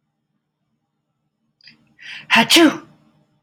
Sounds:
Sneeze